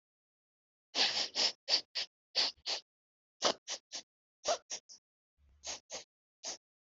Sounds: Sniff